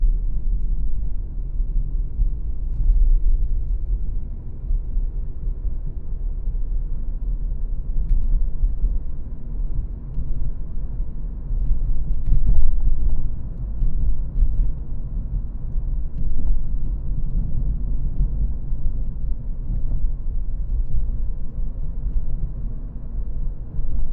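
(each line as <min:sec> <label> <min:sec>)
0:00.0 A very muffled, constant low sound inside a car while driving. 0:12.2
0:12.2 A muffled, low, bumpy sound inside a car while it is driving on a road. 0:13.3
0:13.3 A low, muffled, and uneven sound inside a car while driving on a road. 0:16.2
0:16.2 A muffled, low, bumpy sound inside a car while it is driving on a road. 0:16.6
0:16.6 A very muffled, constant low sound inside a car while driving. 0:24.1
0:19.7 A low, muffled, and uneven sound inside a car while driving on a road. 0:20.0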